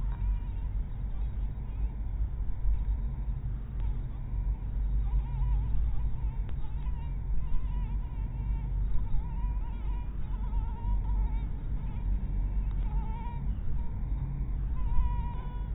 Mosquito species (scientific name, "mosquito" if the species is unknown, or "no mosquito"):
mosquito